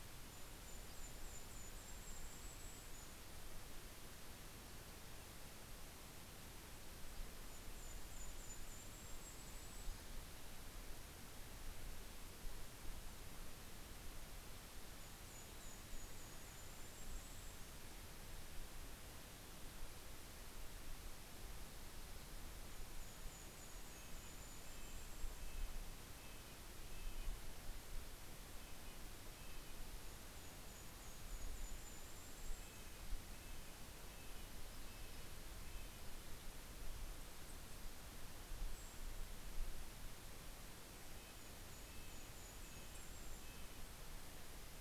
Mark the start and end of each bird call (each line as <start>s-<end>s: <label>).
0.0s-3.4s: Golden-crowned Kinglet (Regulus satrapa)
6.9s-11.4s: Golden-crowned Kinglet (Regulus satrapa)
13.7s-18.3s: Golden-crowned Kinglet (Regulus satrapa)
21.8s-25.9s: Golden-crowned Kinglet (Regulus satrapa)
23.7s-29.9s: Red-breasted Nuthatch (Sitta canadensis)
29.5s-33.4s: Golden-crowned Kinglet (Regulus satrapa)
32.1s-36.4s: Red-breasted Nuthatch (Sitta canadensis)
36.8s-39.9s: Brown Creeper (Certhia americana)
40.6s-44.3s: Red-breasted Nuthatch (Sitta canadensis)
40.7s-44.8s: Golden-crowned Kinglet (Regulus satrapa)